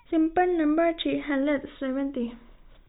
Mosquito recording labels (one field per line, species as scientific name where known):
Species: no mosquito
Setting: cup